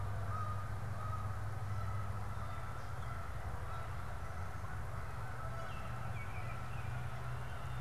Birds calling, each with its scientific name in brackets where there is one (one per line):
Baltimore Oriole (Icterus galbula)
Canada Goose (Branta canadensis)